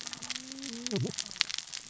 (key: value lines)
label: biophony, cascading saw
recorder: SoundTrap 600 or HydroMoth